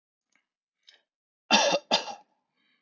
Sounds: Cough